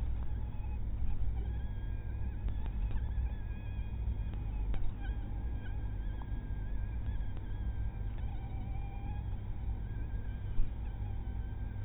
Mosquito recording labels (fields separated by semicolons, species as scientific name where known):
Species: mosquito; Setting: cup